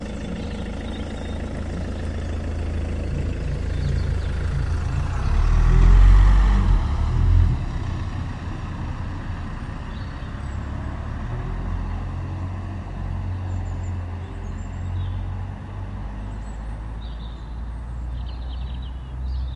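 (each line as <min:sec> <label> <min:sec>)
0:00.0 A car is running steadily. 0:04.2
0:00.0 Birds chirping in the background. 0:19.6
0:04.2 A car accelerates. 0:08.7
0:08.6 A car is driving in the distance, fading away slowly. 0:19.6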